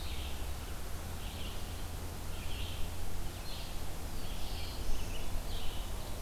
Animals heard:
Red-eyed Vireo (Vireo olivaceus)
Black-throated Blue Warbler (Setophaga caerulescens)

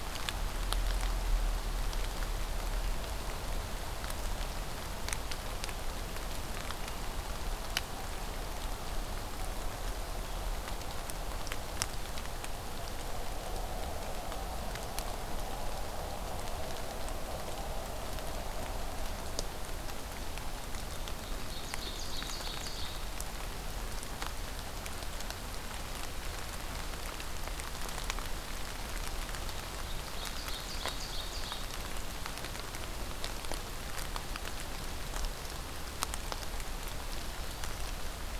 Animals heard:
Ovenbird (Seiurus aurocapilla)

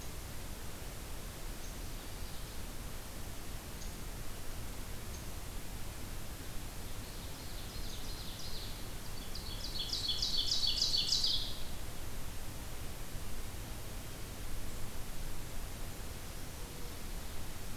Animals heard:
Ovenbird (Seiurus aurocapilla)

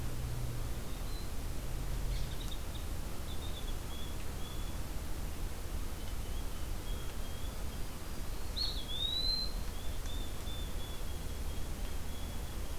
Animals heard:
unidentified call
Eastern Wood-Pewee (Contopus virens)

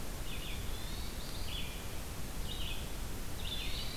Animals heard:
Hermit Thrush (Catharus guttatus)
Red-eyed Vireo (Vireo olivaceus)

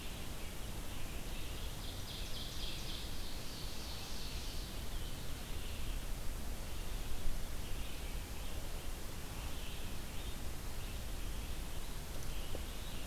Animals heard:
Ovenbird (Seiurus aurocapilla)
Red-eyed Vireo (Vireo olivaceus)

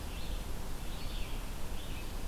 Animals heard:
Red-eyed Vireo (Vireo olivaceus)

